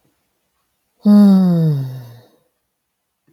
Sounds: Sigh